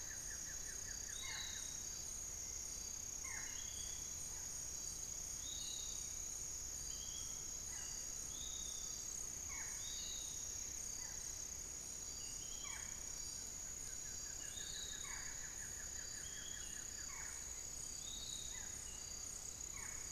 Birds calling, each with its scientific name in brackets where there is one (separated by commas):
Piratic Flycatcher (Legatus leucophaius), Buff-throated Woodcreeper (Xiphorhynchus guttatus), Hauxwell's Thrush (Turdus hauxwelli), unidentified bird, Barred Forest-Falcon (Micrastur ruficollis)